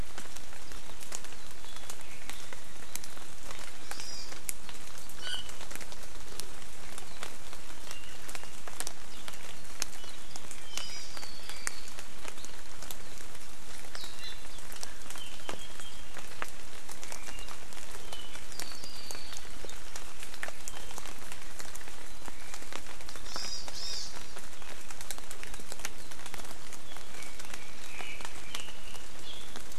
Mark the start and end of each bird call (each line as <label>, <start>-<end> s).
Hawaii Amakihi (Chlorodrepanis virens), 3.8-4.3 s
Iiwi (Drepanis coccinea), 5.2-5.5 s
Hawaii Amakihi (Chlorodrepanis virens), 10.7-11.1 s
Iiwi (Drepanis coccinea), 14.1-14.5 s
Apapane (Himatione sanguinea), 18.4-19.4 s
Hawaii Amakihi (Chlorodrepanis virens), 23.2-24.1 s
Apapane (Himatione sanguinea), 27.1-29.6 s
Omao (Myadestes obscurus), 27.8-28.3 s